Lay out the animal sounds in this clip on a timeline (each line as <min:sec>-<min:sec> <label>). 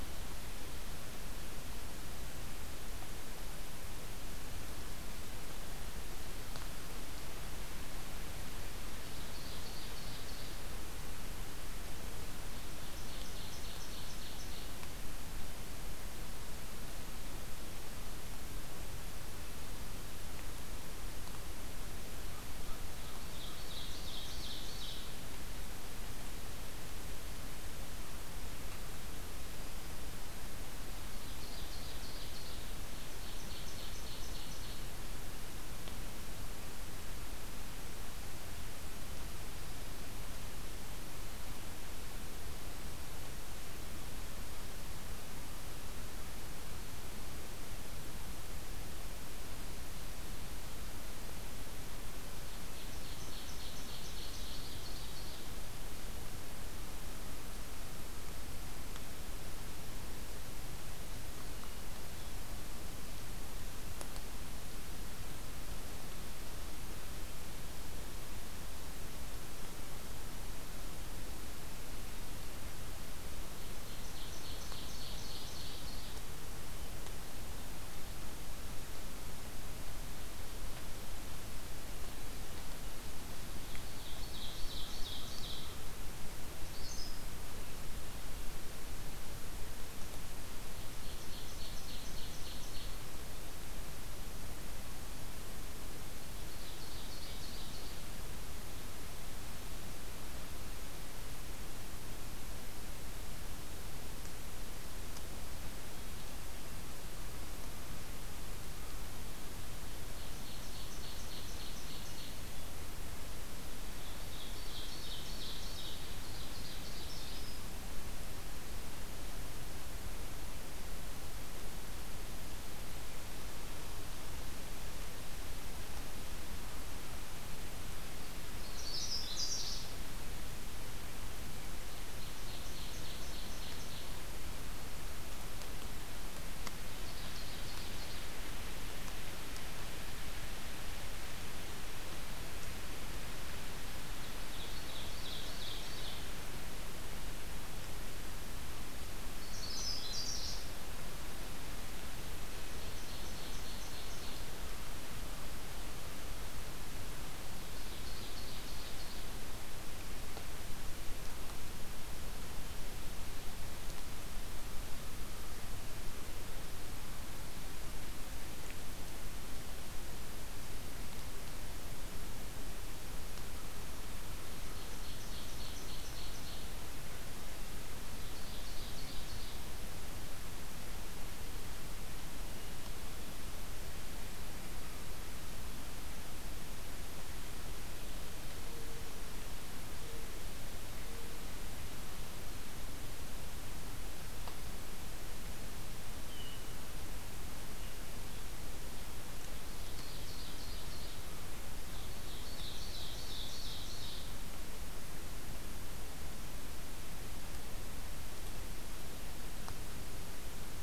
0:09.0-0:10.5 Ovenbird (Seiurus aurocapilla)
0:12.7-0:14.8 Ovenbird (Seiurus aurocapilla)
0:22.1-0:23.8 American Crow (Corvus brachyrhynchos)
0:22.8-0:25.0 Ovenbird (Seiurus aurocapilla)
0:31.0-0:32.7 Ovenbird (Seiurus aurocapilla)
0:32.9-0:34.8 Ovenbird (Seiurus aurocapilla)
0:52.7-0:55.4 Ovenbird (Seiurus aurocapilla)
1:13.6-1:16.2 Ovenbird (Seiurus aurocapilla)
1:23.4-1:25.6 Ovenbird (Seiurus aurocapilla)
1:26.6-1:27.2 Canada Warbler (Cardellina canadensis)
1:31.1-1:33.0 Ovenbird (Seiurus aurocapilla)
1:36.4-1:38.0 Ovenbird (Seiurus aurocapilla)
1:50.2-1:52.4 Ovenbird (Seiurus aurocapilla)
1:54.1-1:57.6 Ovenbird (Seiurus aurocapilla)
2:08.6-2:10.0 Canada Warbler (Cardellina canadensis)
2:11.9-2:14.2 Ovenbird (Seiurus aurocapilla)
2:16.9-2:18.3 Ovenbird (Seiurus aurocapilla)
2:24.3-2:26.3 Ovenbird (Seiurus aurocapilla)
2:29.4-2:30.6 Canada Warbler (Cardellina canadensis)
2:32.9-2:34.4 Ovenbird (Seiurus aurocapilla)
2:37.6-2:39.2 Ovenbird (Seiurus aurocapilla)
2:54.7-2:56.7 Ovenbird (Seiurus aurocapilla)
2:58.1-2:59.6 Ovenbird (Seiurus aurocapilla)
3:16.2-3:16.7 Hermit Thrush (Catharus guttatus)
3:19.8-3:21.2 Ovenbird (Seiurus aurocapilla)
3:21.9-3:24.4 Ovenbird (Seiurus aurocapilla)